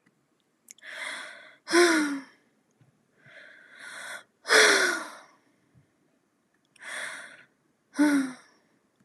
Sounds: Sigh